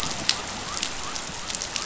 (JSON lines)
{"label": "biophony", "recorder": "SoundTrap 500"}